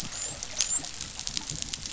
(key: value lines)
label: biophony, dolphin
recorder: SoundTrap 500